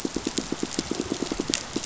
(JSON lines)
{"label": "biophony, pulse", "recorder": "SoundTrap 500"}